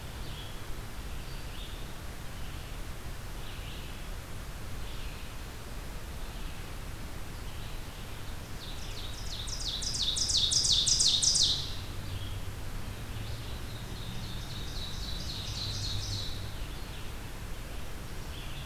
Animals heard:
Ovenbird (Seiurus aurocapilla)
Red-eyed Vireo (Vireo olivaceus)

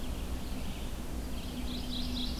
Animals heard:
Red-eyed Vireo (Vireo olivaceus)
Mourning Warbler (Geothlypis philadelphia)

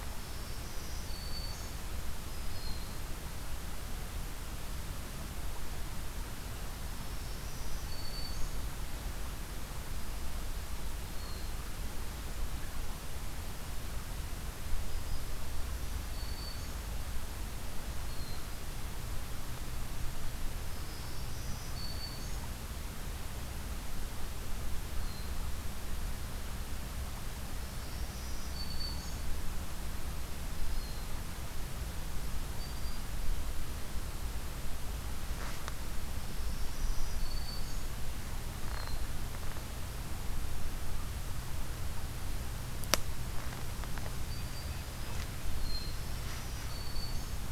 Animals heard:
Black-throated Green Warbler (Setophaga virens)
Hermit Thrush (Catharus guttatus)
Red-breasted Nuthatch (Sitta canadensis)

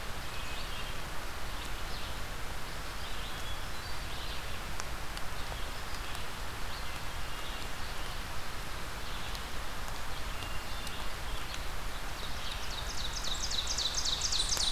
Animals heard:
Ovenbird (Seiurus aurocapilla)
Hermit Thrush (Catharus guttatus)
unidentified call
Red-eyed Vireo (Vireo olivaceus)

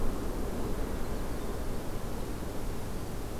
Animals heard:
Winter Wren (Troglodytes hiemalis)

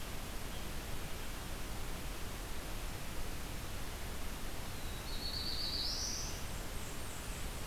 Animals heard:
Blackburnian Warbler (Setophaga fusca)
Black-throated Blue Warbler (Setophaga caerulescens)
Red-eyed Vireo (Vireo olivaceus)

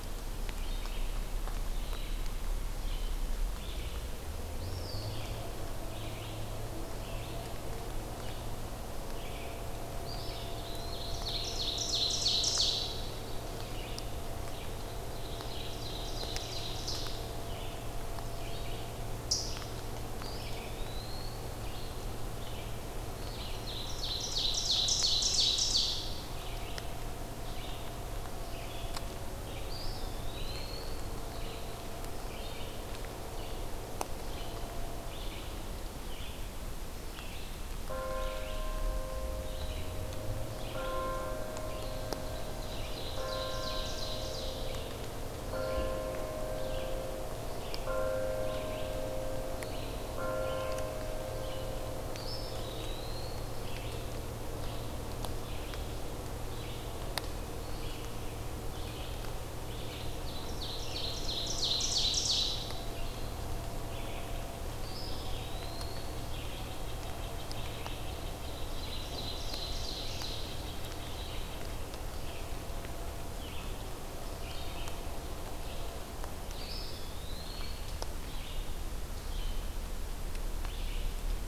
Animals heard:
Red-breasted Nuthatch (Sitta canadensis)
Ovenbird (Seiurus aurocapilla)
Red-eyed Vireo (Vireo olivaceus)
Eastern Wood-Pewee (Contopus virens)

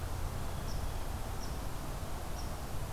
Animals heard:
Red Squirrel (Tamiasciurus hudsonicus)

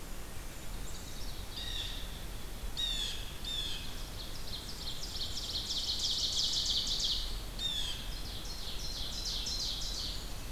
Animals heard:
Blue Jay (Cyanocitta cristata)
Blackburnian Warbler (Setophaga fusca)
Ovenbird (Seiurus aurocapilla)
Black-capped Chickadee (Poecile atricapillus)

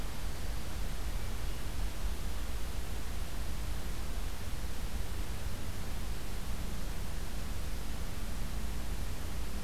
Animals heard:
Hermit Thrush (Catharus guttatus)

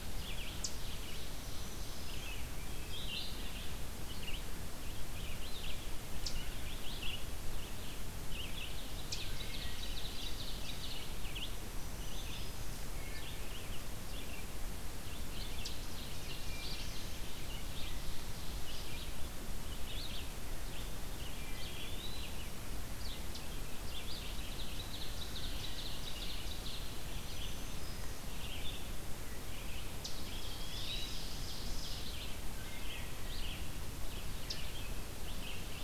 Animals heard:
Eastern Wood-Pewee (Contopus virens)
Eastern Chipmunk (Tamias striatus)
Black-throated Green Warbler (Setophaga virens)
Ovenbird (Seiurus aurocapilla)
Red-eyed Vireo (Vireo olivaceus)
Wood Thrush (Hylocichla mustelina)

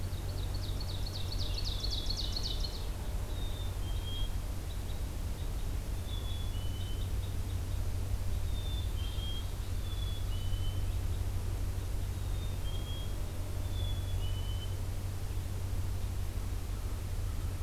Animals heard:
American Crow (Corvus brachyrhynchos)
Black-capped Chickadee (Poecile atricapillus)
Ovenbird (Seiurus aurocapilla)
Red Crossbill (Loxia curvirostra)

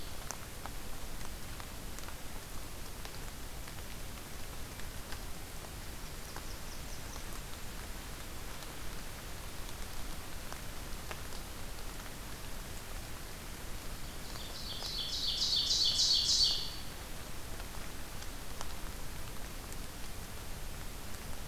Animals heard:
Ovenbird (Seiurus aurocapilla)
Golden-crowned Kinglet (Regulus satrapa)
Blackburnian Warbler (Setophaga fusca)

